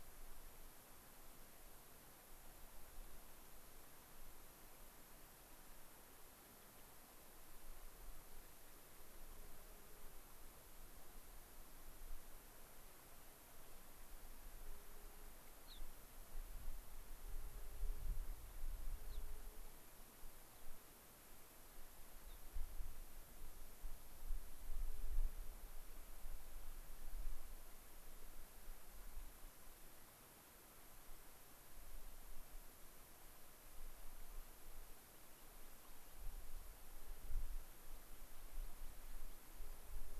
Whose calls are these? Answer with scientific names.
Leucosticte tephrocotis, Anthus rubescens